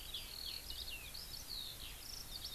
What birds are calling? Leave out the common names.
Alauda arvensis